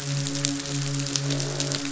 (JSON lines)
{"label": "biophony, midshipman", "recorder": "SoundTrap 500"}